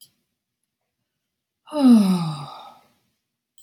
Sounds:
Sigh